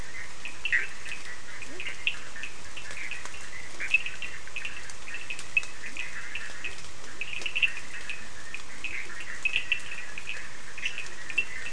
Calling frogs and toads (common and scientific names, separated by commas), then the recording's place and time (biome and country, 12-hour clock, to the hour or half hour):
Leptodactylus latrans, Bischoff's tree frog (Boana bischoffi), Cochran's lime tree frog (Sphaenorhynchus surdus), blacksmith tree frog (Boana faber)
Atlantic Forest, Brazil, 10:30pm